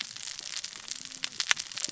{"label": "biophony, cascading saw", "recorder": "SoundTrap 600 or HydroMoth"}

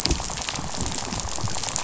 {"label": "biophony, rattle", "recorder": "SoundTrap 500"}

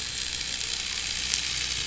{"label": "anthrophony, boat engine", "recorder": "SoundTrap 500"}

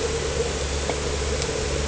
{"label": "anthrophony, boat engine", "recorder": "HydroMoth"}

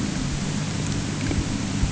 {"label": "anthrophony, boat engine", "recorder": "HydroMoth"}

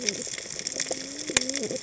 {"label": "biophony, cascading saw", "recorder": "HydroMoth"}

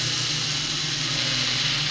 {"label": "anthrophony, boat engine", "recorder": "SoundTrap 500"}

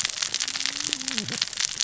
{"label": "biophony, cascading saw", "recorder": "SoundTrap 600 or HydroMoth"}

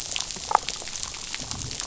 {"label": "biophony, damselfish", "recorder": "SoundTrap 500"}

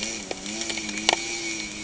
{"label": "anthrophony, boat engine", "recorder": "HydroMoth"}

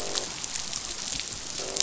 {"label": "biophony, croak", "recorder": "SoundTrap 500"}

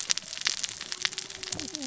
{"label": "biophony, cascading saw", "recorder": "SoundTrap 600 or HydroMoth"}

